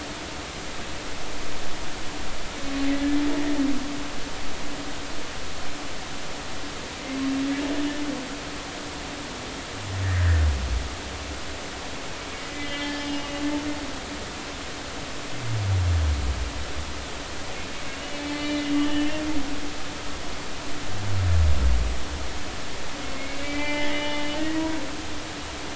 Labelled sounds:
12.4	13.2	humpback whale, 1.7 to 5.2 kHz
18.3	19.5	humpback whale, 2.0 to 4.5 kHz
23.3	24.7	humpback whale, 0.83 to 3.1 kHz

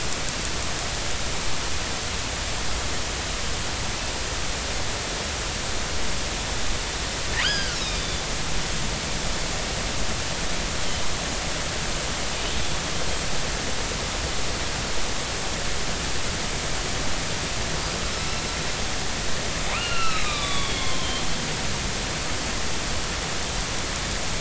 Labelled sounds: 7.4	8.2	killer whale, northern resident, 1.3 to 5.6 kHz
18.3	18.6	killer whale, northern resident, 4.0 to 4.1 kHz
19.7	21.2	killer whale, northern resident, 0.99 to 4.1 kHz

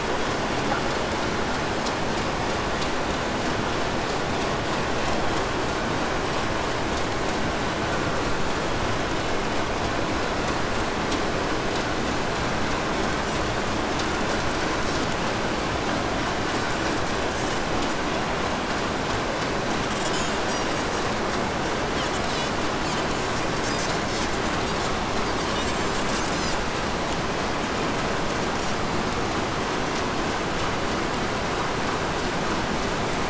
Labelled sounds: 14.0	15.6	Pacific white-sided dolphin, 2.7 to 8.0 kHz
16.5	18.3	Pacific white-sided dolphin, 1.4 to 8.0 kHz
19.5	26.7	Pacific white-sided dolphin, 1.6 to 8.0 kHz

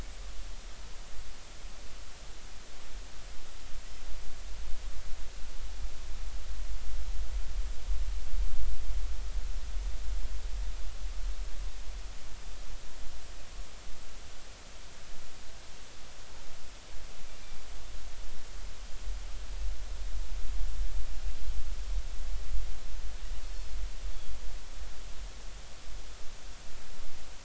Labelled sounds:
23.4	23.7	Pacific white-sided dolphin, 4.3 to 4.4 kHz

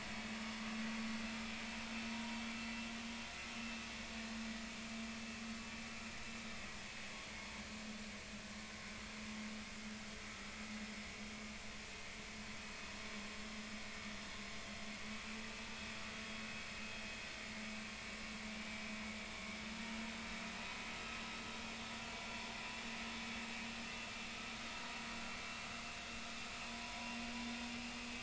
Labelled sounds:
2.1	2.4	vessel noise, 0.90 to 0.99 kHz

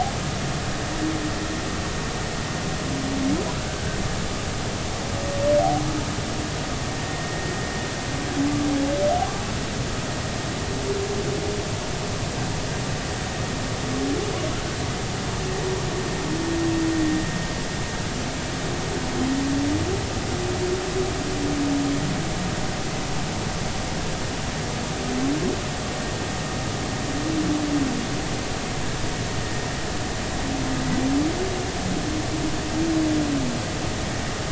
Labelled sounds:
3.6	4.0	humpback whale, 1.5 to 1.7 kHz
7.1	7.5	vessel noise, 1.8 to 2.0 kHz

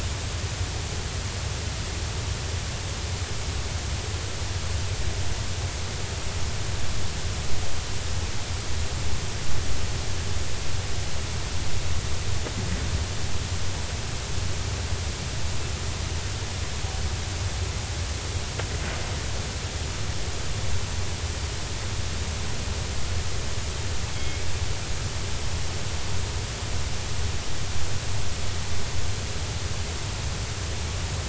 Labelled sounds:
24.1	24.5	killer whale, 2.1 to 3.4 kHz

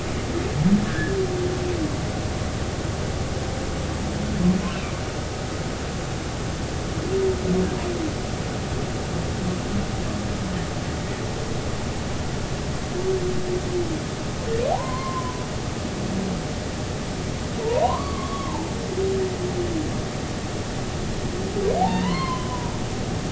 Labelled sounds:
0.9	1.1	humpback whale, 1.5 to 1.9 kHz
14.7	15.4	humpback whale, 0.80 to 1.1 kHz
17.6	18.7	humpback whale, 0.83 to 1.3 kHz
21.8	22.7	humpback whale, 0.80 to 3.3 kHz

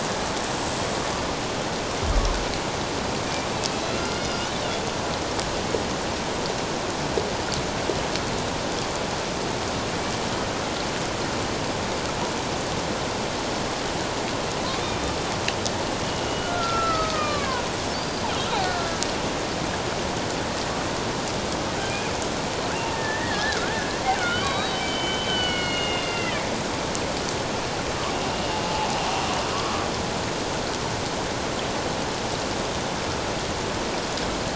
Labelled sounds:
3.9	4.8	killer whale, Bigg's (transient), 1.3 to 5.1 kHz
16.0	18.2	killer whale, Bigg's (transient), 0.94 to 4.9 kHz
18.6	18.9	killer whale, Bigg's (transient), 1.3 to 1.9 kHz
22.7	26.5	killer whale, Bigg's (transient), 1.0 to 4.4 kHz

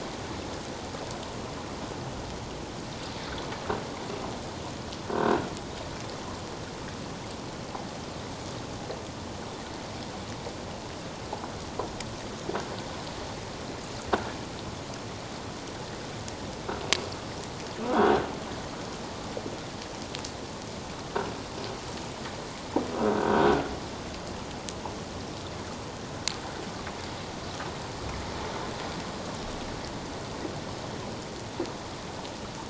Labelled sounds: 5.1	5.4	croaking sound likely from a nearby submerged object, 1.4 to 1.7 kHz
23.0	23.5	croaking sound likely from a nearby submerged object, 1.4 to 1.6 kHz

